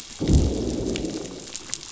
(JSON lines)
{"label": "biophony, growl", "recorder": "SoundTrap 500"}